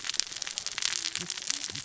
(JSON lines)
{"label": "biophony, cascading saw", "recorder": "SoundTrap 600 or HydroMoth"}